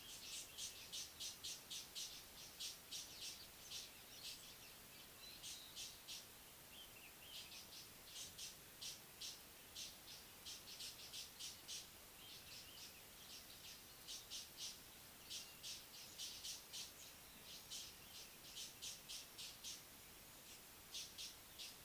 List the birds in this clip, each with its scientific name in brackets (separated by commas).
Mocking Cliff-Chat (Thamnolaea cinnamomeiventris)